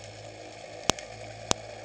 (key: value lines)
label: anthrophony, boat engine
recorder: HydroMoth